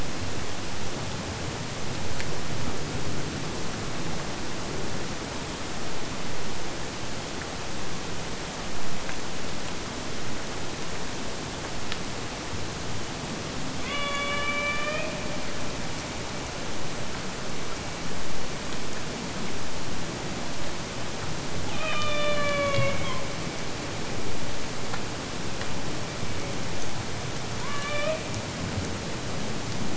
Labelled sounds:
13.8	15.5	killer whale, Bigg's (transient), AT1 transient, 0.42 to 5.0 kHz
21.6	23.3	killer whale, Bigg's (transient), AT1 transient, 0.49 to 5.0 kHz
27.6	28.4	killer whale, Bigg's (transient), AT1 transient, 0.44 to 4.0 kHz

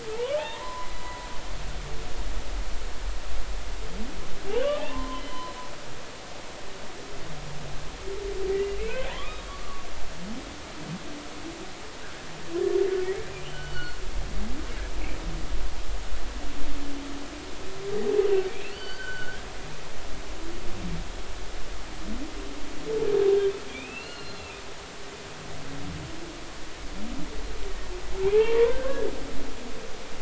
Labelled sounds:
0.1	1.3	humpback whale, 0.80 to 3.3 kHz
4.5	5.5	humpback whale, 0.83 to 3.1 kHz
8.5	9.9	humpback whale, 0.93 to 2.7 kHz
13.4	14.0	humpback whale, 2.8 to 4.5 kHz
18.4	19.4	humpback whale, 1.4 to 4.7 kHz
23.7	24.6	humpback whale, 2.2 to 4.4 kHz
28.2	29.1	humpback whale, 0.80 to 1.7 kHz

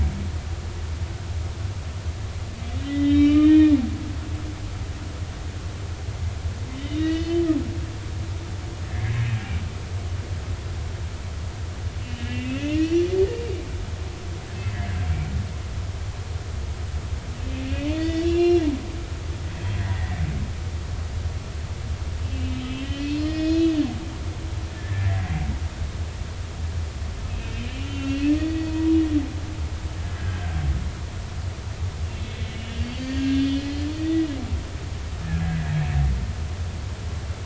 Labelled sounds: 2.9	4.2	humpback whale, 1.1 to 4.0 kHz
6.9	7.4	humpback whale, 1.8 to 3.9 kHz
8.9	9.1	humpback whale, 1.6 to 1.8 kHz
12.3	13.1	humpback whale, 1.9 to 5.9 kHz
17.9	18.6	humpback whale, 1.9 to 5.7 kHz
20.8	23.8	humpback whale, 1.8 to 5.6 kHz
24.7	25.3	humpback whale, 1.6 to 2.0 kHz
27.5	29.0	humpback whale, 0.93 to 3.0 kHz
30.0	30.5	humpback whale, 1.5 to 1.7 kHz
32.0	34.1	humpback whale, 2.6 to 4.8 kHz
35.2	35.6	humpback whale, 1.6 to 2.0 kHz

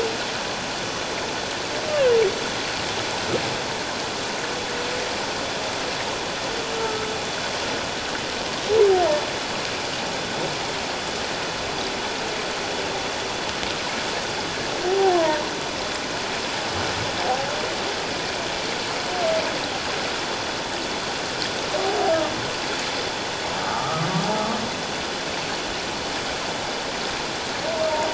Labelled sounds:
6.8	7.1	humpback whale, 1.2 to 1.4 kHz
14.9	15.4	humpback whale, 0.78 to 1.1 kHz
23.6	24.1	humpback whale, 1.1 to 1.4 kHz

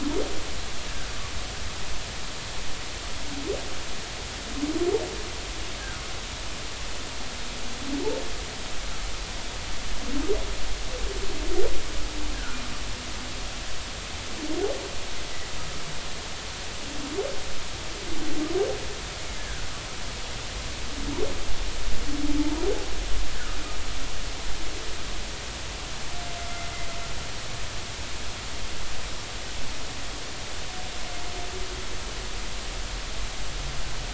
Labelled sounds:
12.3	12.6	humpback whale, 1.3 to 1.7 kHz
19.4	19.7	humpback whale, 1.4 to 1.8 kHz
22.4	22.6	humpback whale, 0.83 to 0.99 kHz
26.4	26.7	humpback whale, 2.0 to 2.1 kHz

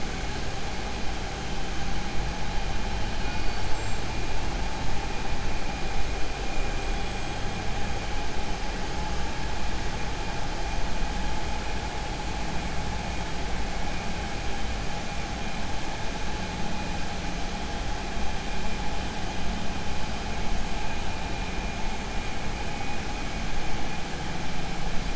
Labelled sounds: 3.6	4.0	killer whale, 6.6 to 7.9 kHz

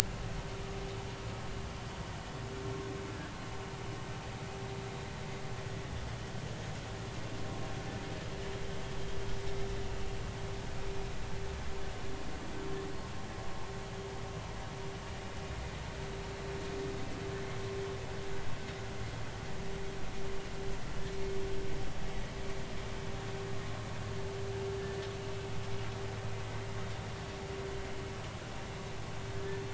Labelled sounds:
29.3	29.6	humpback whale, 1.7 to 1.8 kHz

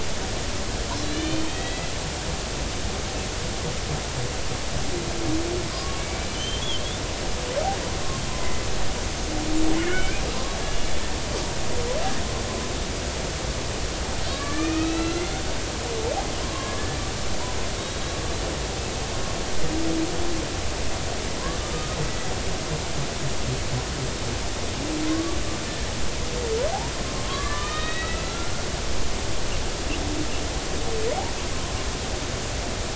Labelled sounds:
1.0	1.9	killer whale, Bigg's (transient), 1.9 to 4.5 kHz
5.7	6.9	killer whale, Bigg's (transient), 0.99 to 3.5 kHz
8.3	8.5	killer whale, Bigg's (transient), 0.96 to 1.1 kHz
9.8	10.9	killer whale, Bigg's (transient), 1.4 to 3.1 kHz
14.3	15.2	killer whale, Bigg's (transient), 1.1 to 4.2 kHz
16.4	16.7	killer whale, Bigg's (transient), 0.99 to 1.2 kHz
21.7	22.0	killer whale, Bigg's (transient), 1.2 to 1.3 kHz
25.1	25.4	killer whale, Bigg's (transient), 1.0 to 1.2 kHz
27.3	28.5	killer whale, Bigg's (transient), 1.0 to 3.9 kHz

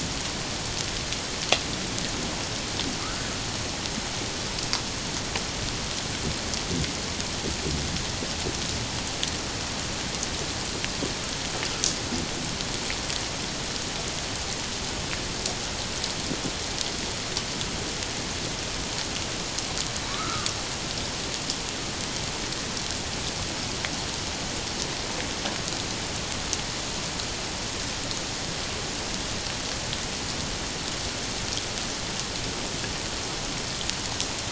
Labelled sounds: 3.0	3.3	humpback whale, 1.1 to 1.6 kHz
20.1	20.5	humpback whale, 0.84 to 1.5 kHz

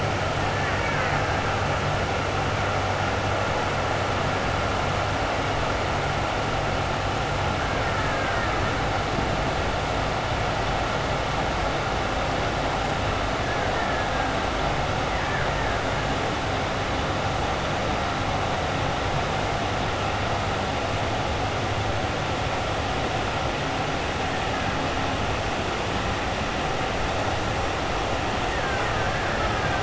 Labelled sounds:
0.6	1.2	killer whale, Bigg's (transient), 1.0 to 2.5 kHz
7.8	8.6	killer whale, Bigg's (transient), 0.89 to 2.3 kHz
15.1	15.7	killer whale, Bigg's (transient), 0.90 to 2.4 kHz
28.5	29.8	killer whale, Bigg's (transient), 0.98 to 2.4 kHz

